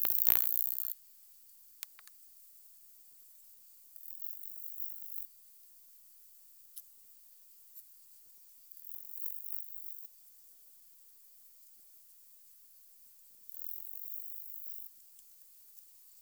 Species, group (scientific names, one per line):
Stenobothrus rubicundulus
Orthoptera